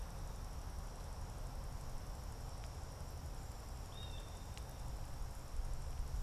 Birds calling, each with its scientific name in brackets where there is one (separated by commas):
Blue Jay (Cyanocitta cristata)